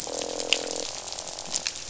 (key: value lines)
label: biophony, croak
recorder: SoundTrap 500